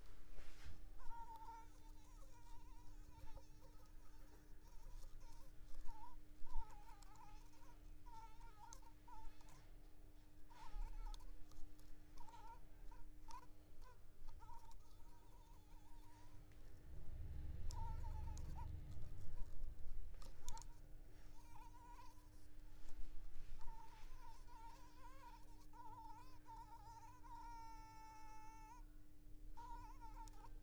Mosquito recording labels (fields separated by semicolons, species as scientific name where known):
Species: Anopheles arabiensis; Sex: female; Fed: unfed; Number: one; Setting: cup